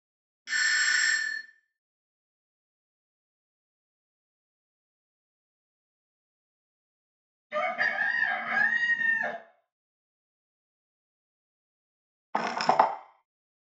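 At 0.45 seconds, there is a doorbell. After that, at 7.5 seconds, a chicken can be heard. Finally, at 12.33 seconds, the sound of wood is heard.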